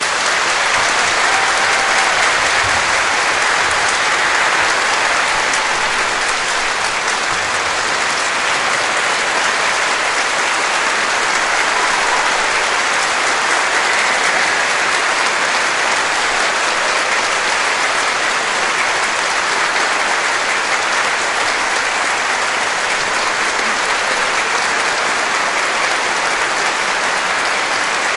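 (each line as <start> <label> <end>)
0.0 Continuous applause from an indoor audience. 28.2
1.3 Muffled audience cheering. 2.6
11.6 Audience cheers faintly in the background. 12.7
13.7 Audience whistling cheerfully in the background. 15.1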